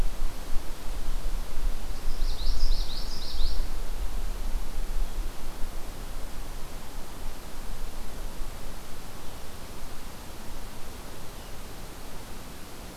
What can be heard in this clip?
Common Yellowthroat